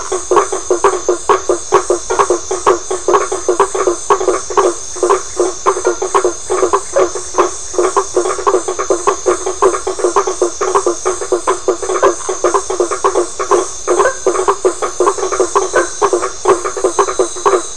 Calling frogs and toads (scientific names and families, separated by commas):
Boana faber (Hylidae)